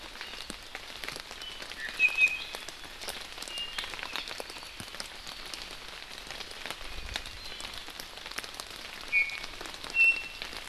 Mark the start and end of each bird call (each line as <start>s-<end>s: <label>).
1.4s-2.6s: Iiwi (Drepanis coccinea)
3.4s-3.9s: Iiwi (Drepanis coccinea)
4.1s-4.8s: Apapane (Himatione sanguinea)
7.3s-7.7s: Iiwi (Drepanis coccinea)
9.1s-9.5s: Iiwi (Drepanis coccinea)
9.9s-10.4s: Iiwi (Drepanis coccinea)